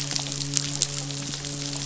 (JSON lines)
{"label": "biophony, midshipman", "recorder": "SoundTrap 500"}